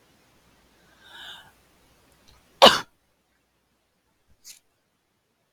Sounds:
Sneeze